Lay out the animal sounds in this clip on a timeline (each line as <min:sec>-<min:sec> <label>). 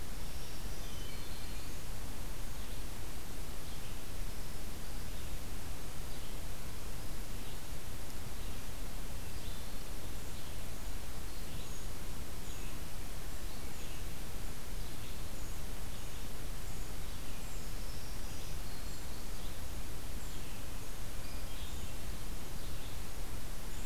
0:00.0-0:12.8 Red-eyed Vireo (Vireo olivaceus)
0:00.2-0:02.0 Black-throated Green Warbler (Setophaga virens)
0:00.7-0:01.6 Hermit Thrush (Catharus guttatus)
0:12.4-0:23.9 Golden-crowned Kinglet (Regulus satrapa)
0:13.4-0:23.9 Red-eyed Vireo (Vireo olivaceus)
0:17.7-0:19.2 Black-throated Green Warbler (Setophaga virens)